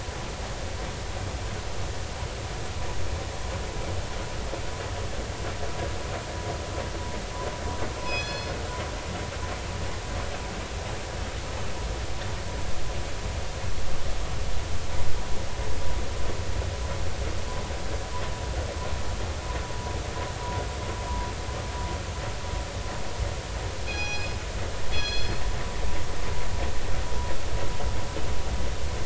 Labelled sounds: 8.0	8.5	killer whale, northern resident, G clan, call N24ii, 2.5 to 6.0 kHz
23.9	24.4	killer whale, northern resident, G clan, call N24ii, 0.80 to 5.9 kHz
24.9	25.4	killer whale, northern resident, G clan, call N24ii, 2.4 to 6.0 kHz

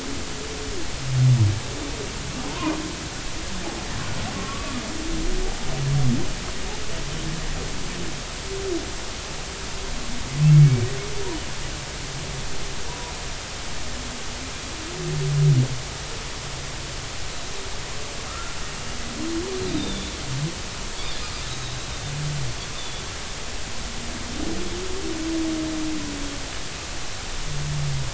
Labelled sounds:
4.3	4.8	humpback whale, 1.1 to 1.2 kHz
10.5	10.9	humpback whale, 2.2 to 2.3 kHz
18.3	18.6	humpback whale, 1.2 to 1.7 kHz
19.7	20.1	humpback whale, 3.4 to 3.8 kHz
22.8	23.0	humpback whale, 3.3 to 3.7 kHz

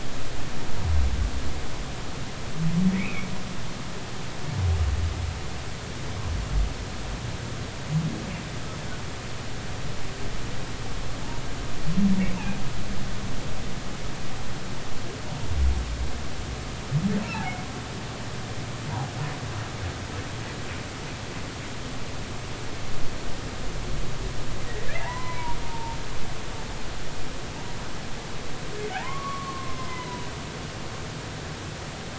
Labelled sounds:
2.9	3.3	humpback whale, 2.1 to 2.7 kHz
12.3	12.6	humpback whale, 2.4 to 2.8 kHz
25.0	26.0	humpback whale, 0.80 to 2.4 kHz
28.9	30.3	humpback whale, 0.80 to 5.4 kHz

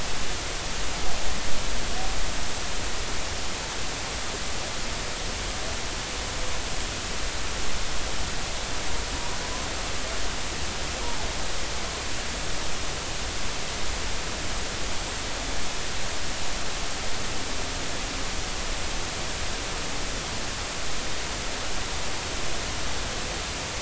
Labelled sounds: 12.0	12.3	humpback whale, 0.80 to 1.0 kHz

